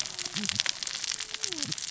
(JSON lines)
{"label": "biophony, cascading saw", "recorder": "SoundTrap 600 or HydroMoth"}